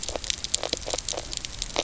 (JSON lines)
{"label": "biophony, knock croak", "recorder": "SoundTrap 300"}